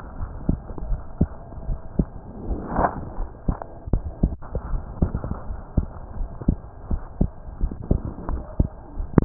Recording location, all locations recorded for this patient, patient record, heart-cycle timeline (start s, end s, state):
pulmonary valve (PV)
aortic valve (AV)+pulmonary valve (PV)+tricuspid valve (TV)+mitral valve (MV)
#Age: Child
#Sex: Male
#Height: 138.0 cm
#Weight: 25.0 kg
#Pregnancy status: False
#Murmur: Absent
#Murmur locations: nan
#Most audible location: nan
#Systolic murmur timing: nan
#Systolic murmur shape: nan
#Systolic murmur grading: nan
#Systolic murmur pitch: nan
#Systolic murmur quality: nan
#Diastolic murmur timing: nan
#Diastolic murmur shape: nan
#Diastolic murmur grading: nan
#Diastolic murmur pitch: nan
#Diastolic murmur quality: nan
#Outcome: Normal
#Campaign: 2015 screening campaign
0.00	0.15	unannotated
0.15	0.32	S1
0.32	0.46	systole
0.46	0.60	S2
0.60	0.86	diastole
0.86	1.02	S1
1.02	1.16	systole
1.16	1.30	S2
1.30	1.62	diastole
1.62	1.80	S1
1.80	1.94	systole
1.94	2.08	S2
2.08	2.43	diastole
2.43	2.60	S1
2.60	2.74	systole
2.74	2.90	S2
2.90	3.13	diastole
3.13	3.28	S1
3.28	3.44	systole
3.44	3.56	S2
3.56	3.85	diastole
3.85	4.04	S1
4.04	4.18	systole
4.18	4.38	S2
4.38	4.66	diastole
4.66	4.82	S1
4.82	4.97	systole
4.97	5.14	S2
5.14	5.45	diastole
5.45	5.58	S1
5.58	5.74	systole
5.74	5.90	S2
5.90	6.15	diastole
6.15	6.30	S1
6.30	6.44	systole
6.44	6.60	S2
6.60	6.87	diastole
6.87	7.04	S1
7.04	7.17	systole
7.17	7.32	S2
7.32	7.57	diastole
7.57	7.76	S1
7.76	7.86	systole
7.86	7.98	S2
7.98	8.24	diastole
8.24	8.44	S1
8.44	8.57	systole
8.57	8.74	S2
8.74	8.95	diastole
8.95	9.11	S1
9.11	9.25	unannotated